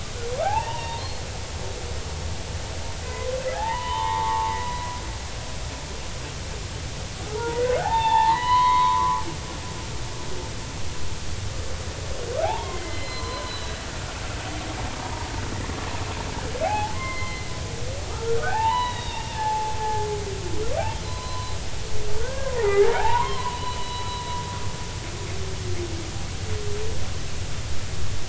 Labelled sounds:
0.4	1.1	humpback whale, 0.80 to 3.7 kHz
3.0	4.5	humpback whale, 0.80 to 3.7 kHz
7.4	9.3	humpback whale, 0.80 to 4.4 kHz
12.4	13.8	humpback whale, 0.80 to 4.2 kHz
15.0	15.3	humpback whale, 0.90 to 1.1 kHz
16.6	17.5	humpback whale, 0.80 to 3.2 kHz
18.3	20.1	humpback whale, 0.80 to 4.0 kHz
21.0	21.5	humpback whale, 0.96 to 4.2 kHz
22.2	24.1	humpback whale, 0.80 to 4.3 kHz

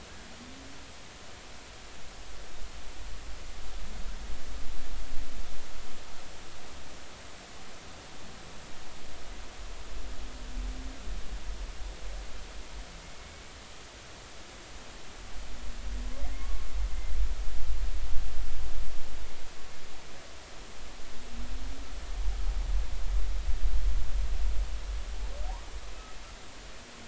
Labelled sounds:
16.4	16.7	humpback whale, 1.0 to 1.2 kHz

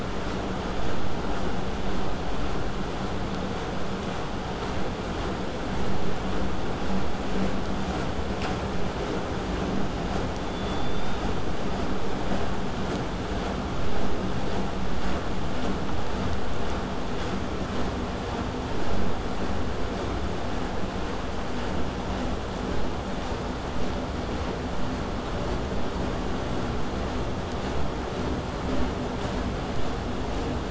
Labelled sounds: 10.4	11.3	killer whale, southern resident, 3.3 to 8.0 kHz
25.7	30.7	vessel noise, 0 to 8.0 kHz

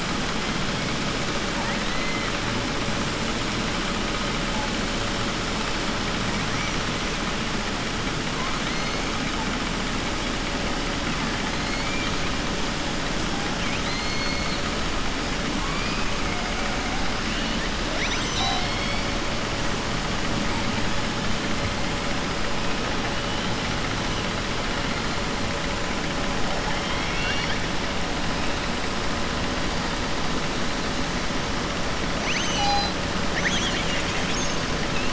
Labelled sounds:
1.5	2.3	killer whale, southern resident, 0.78 to 2.6 kHz
13.6	14.6	killer whale, southern resident, 2.2 to 6.2 kHz
17.9	19.1	killer whale, southern resident, 0.75 to 7.8 kHz
26.7	27.6	killer whale, southern resident, 1.5 to 5.6 kHz
32.1	33.0	killer whale, southern resident, 0.82 to 7.9 kHz

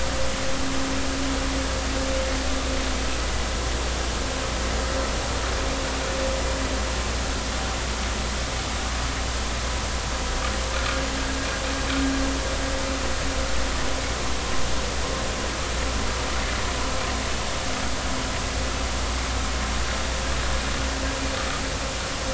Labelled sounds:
10.7	11.0	vessel noise, 1.3 to 1.5 kHz

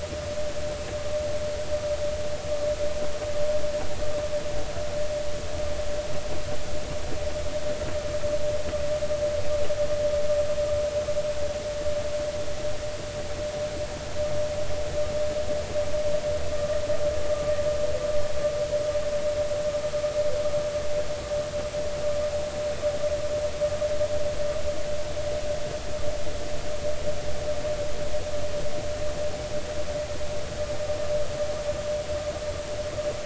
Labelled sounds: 16.5	16.8	vessel noise, 1.1 to 1.2 kHz

